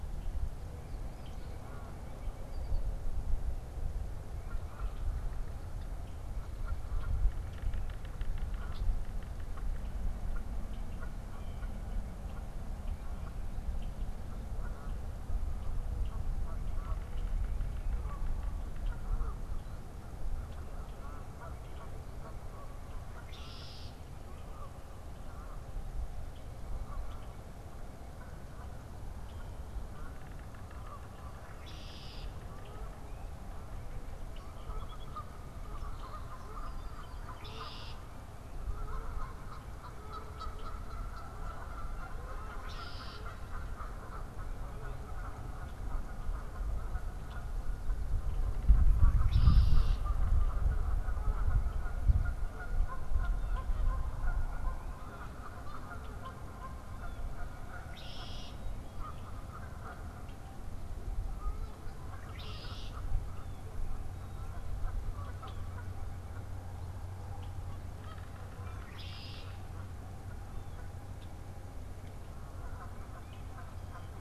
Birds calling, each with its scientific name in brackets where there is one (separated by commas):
Yellow-bellied Sapsucker (Sphyrapicus varius), Eastern Phoebe (Sayornis phoebe), Red-winged Blackbird (Agelaius phoeniceus), Song Sparrow (Melospiza melodia), unidentified bird, Canada Goose (Branta canadensis)